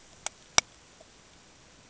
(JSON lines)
{"label": "ambient", "recorder": "HydroMoth"}